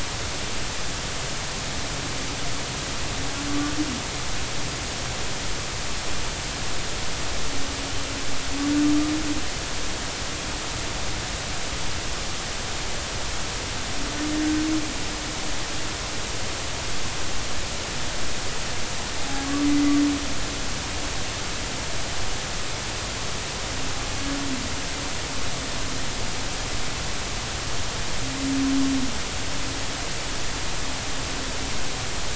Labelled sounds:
3.5	3.7	humpback whale, 1.1 to 1.2 kHz

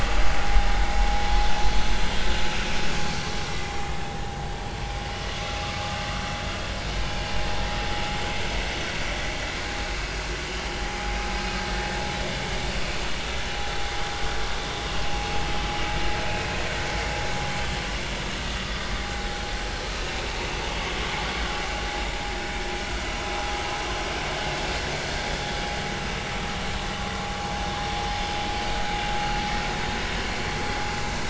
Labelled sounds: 3.1	3.3	vessel noise, 4.4 to 4.5 kHz
16.2	16.5	vessel noise, 2.4 to 2.7 kHz

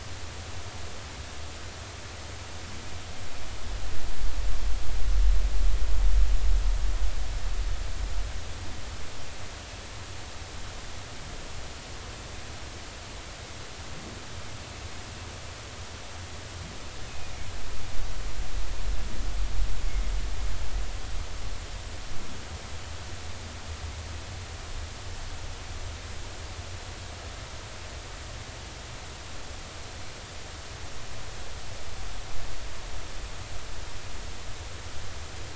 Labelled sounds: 17.1	17.3	humpback whale, 2.4 to 2.6 kHz

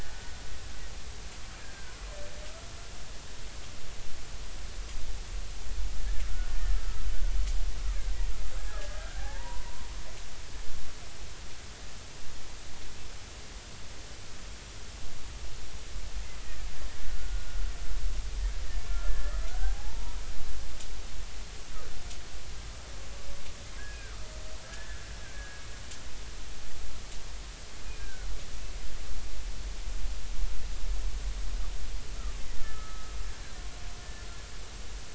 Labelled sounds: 1.6	1.9	killer whale, Bigg's (transient), 1.4 to 1.7 kHz
8.7	9.9	killer whale, Bigg's (transient), 0.80 to 2.0 kHz
16.4	17.5	killer whale, Bigg's (transient), 1.4 to 2.0 kHz
19.1	20.2	killer whale, Bigg's (transient), 0.80 to 1.8 kHz
23.8	25.1	killer whale, Bigg's (transient), 1.4 to 1.8 kHz
25.3	25.6	killer whale, Bigg's (transient), 1.6 to 1.8 kHz
27.8	28.3	killer whale, Bigg's (transient), 1.4 to 2.5 kHz
32.6	33.1	killer whale, Bigg's (transient), 1.2 to 1.8 kHz
34.0	34.3	killer whale, Bigg's (transient), 1.7 to 1.8 kHz

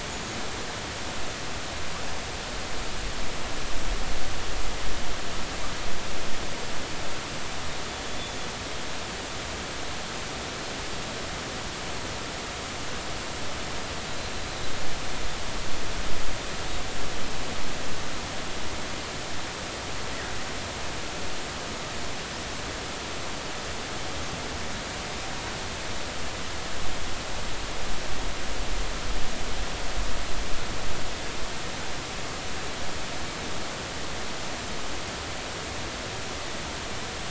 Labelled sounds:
0.1	0.4	killer whale, Bigg's (transient), 6.5 to 6.9 kHz
8.0	8.4	killer whale, Bigg's (transient), 3.4 to 3.6 kHz

